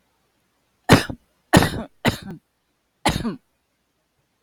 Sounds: Cough